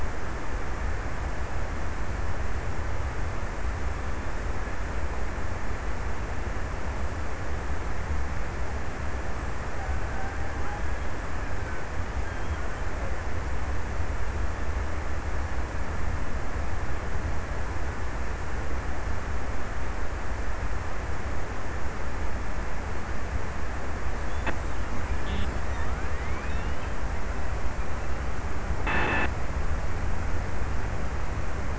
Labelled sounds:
9.0	12.3	killer whale, Bigg's (transient), 0.52 to 2.0 kHz

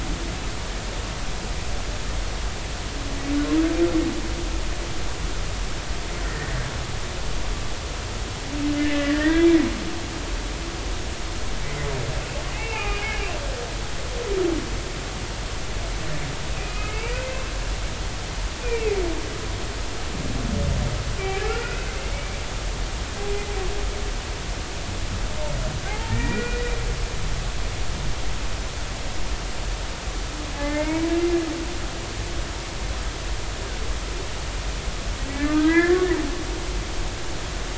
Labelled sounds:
6.2	6.5	humpback whale, 1.8 to 1.9 kHz
8.8	9.5	humpback whale, 1.6 to 2.9 kHz
12.5	13.2	humpback whale, 1.2 to 2.8 kHz
16.5	17.2	humpback whale, 1.2 to 2.8 kHz
18.6	19.0	humpback whale, 2.0 to 2.5 kHz
21.4	22.4	humpback whale, 1.2 to 2.6 kHz
25.9	26.7	humpback whale, 0.80 to 2.5 kHz
30.5	31.1	humpback whale, 0.80 to 2.3 kHz
35.3	36.1	humpback whale, 0.93 to 2.1 kHz

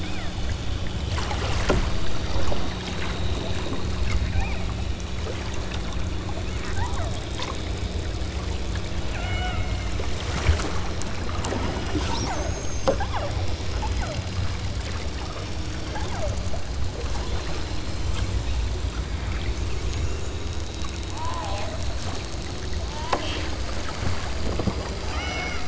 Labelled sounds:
0.0	0.4	killer whale, southern Alaska resident, 0.81 to 2.2 kHz
4.3	4.7	killer whale, southern Alaska resident, 0.47 to 3.0 kHz
6.3	7.3	killer whale, southern Alaska resident, 0.39 to 2.1 kHz
9.2	9.7	killer whale, southern Alaska resident, 0.47 to 3.3 kHz
11.3	13.4	killer whale, southern Alaska resident, 0.43 to 8.0 kHz
13.9	14.2	killer whale, southern Alaska resident, 0.39 to 1.8 kHz
15.8	16.7	killer whale, southern Alaska resident, 0.47 to 1.1 kHz
21.1	21.9	killer whale, southern Alaska resident, 0.34 to 1.5 kHz
22.8	23.5	killer whale, southern Alaska resident, 0.60 to 3.7 kHz
25.1	25.6	killer whale, southern Alaska resident, 0.39 to 3.6 kHz

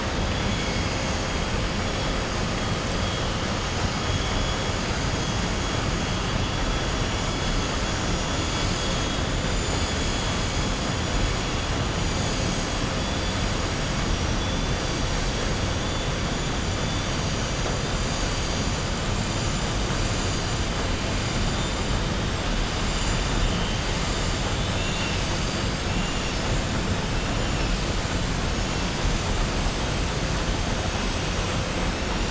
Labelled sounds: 9.3	10.2	vessel noise, 6.5 to 7.8 kHz

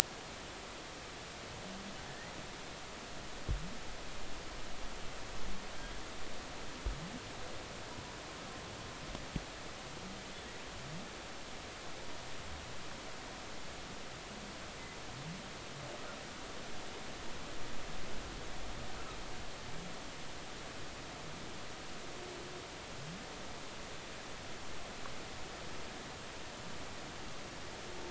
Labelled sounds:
2.1	2.3	humpback whale, 1.7 to 2.1 kHz

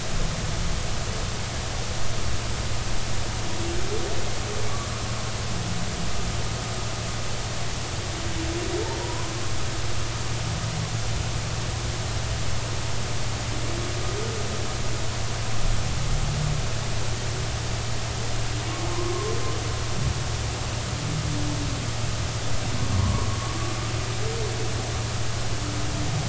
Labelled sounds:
9.0	9.3	humpback whale, 0.90 to 1.1 kHz
22.9	23.3	humpback whale, 0.90 to 1.2 kHz

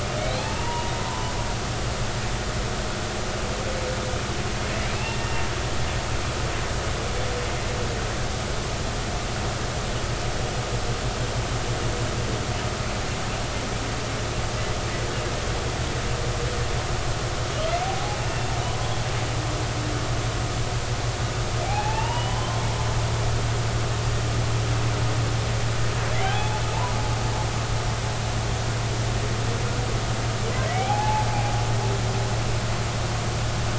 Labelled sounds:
0.4	1.3	humpback whale, 0.80 to 1.1 kHz
4.9	5.4	humpback whale, 2.6 to 2.9 kHz
17.8	18.2	humpback whale, 0.80 to 0.90 kHz
21.7	22.6	humpback whale, 0.80 to 3.2 kHz
26.2	26.6	humpback whale, 0.80 to 3.5 kHz
30.8	31.3	humpback whale, 0.80 to 0.93 kHz

